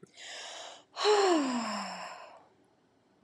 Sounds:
Sigh